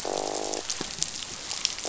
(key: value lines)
label: biophony, croak
recorder: SoundTrap 500